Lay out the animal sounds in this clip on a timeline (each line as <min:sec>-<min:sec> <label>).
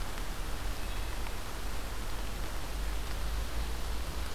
0:00.5-0:01.4 Wood Thrush (Hylocichla mustelina)